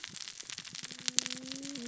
{"label": "biophony, cascading saw", "recorder": "SoundTrap 600 or HydroMoth"}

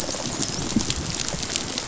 {"label": "biophony, rattle response", "recorder": "SoundTrap 500"}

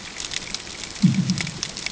{"label": "anthrophony, bomb", "recorder": "HydroMoth"}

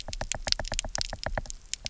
{"label": "biophony, knock", "recorder": "SoundTrap 300"}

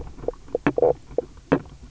{"label": "biophony, knock croak", "recorder": "SoundTrap 300"}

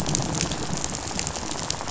{"label": "biophony, rattle", "recorder": "SoundTrap 500"}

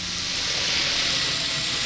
{"label": "anthrophony, boat engine", "recorder": "SoundTrap 500"}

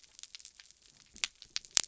{"label": "biophony", "recorder": "SoundTrap 300"}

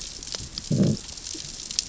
{"label": "biophony, growl", "recorder": "SoundTrap 600 or HydroMoth"}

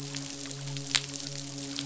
{"label": "biophony, midshipman", "recorder": "SoundTrap 500"}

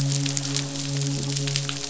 {"label": "biophony, midshipman", "recorder": "SoundTrap 500"}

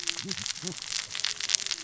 {"label": "biophony, cascading saw", "recorder": "SoundTrap 600 or HydroMoth"}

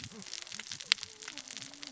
{"label": "biophony, cascading saw", "recorder": "SoundTrap 600 or HydroMoth"}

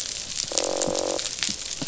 {"label": "biophony, croak", "recorder": "SoundTrap 500"}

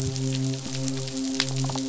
{"label": "biophony, midshipman", "recorder": "SoundTrap 500"}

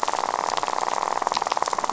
{"label": "biophony, rattle", "recorder": "SoundTrap 500"}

